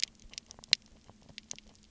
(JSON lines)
{"label": "biophony, knock croak", "recorder": "SoundTrap 300"}